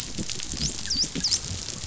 {"label": "biophony, dolphin", "recorder": "SoundTrap 500"}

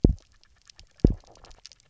{"label": "biophony", "recorder": "SoundTrap 300"}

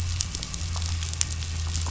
{"label": "anthrophony, boat engine", "recorder": "SoundTrap 500"}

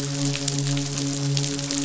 {"label": "biophony, midshipman", "recorder": "SoundTrap 500"}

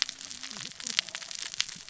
{"label": "biophony, cascading saw", "recorder": "SoundTrap 600 or HydroMoth"}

